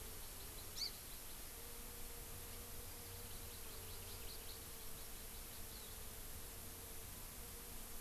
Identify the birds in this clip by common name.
Hawaii Amakihi